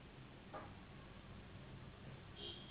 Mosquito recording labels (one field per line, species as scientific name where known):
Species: Anopheles gambiae s.s.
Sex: female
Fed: unfed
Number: one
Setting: insect culture